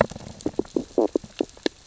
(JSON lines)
{"label": "biophony, stridulation", "recorder": "SoundTrap 600 or HydroMoth"}